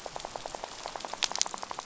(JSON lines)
{"label": "biophony, rattle", "recorder": "SoundTrap 500"}